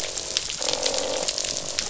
{"label": "biophony, croak", "recorder": "SoundTrap 500"}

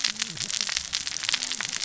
{"label": "biophony, cascading saw", "recorder": "SoundTrap 600 or HydroMoth"}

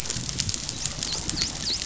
{"label": "biophony, dolphin", "recorder": "SoundTrap 500"}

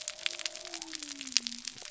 {"label": "biophony", "recorder": "SoundTrap 300"}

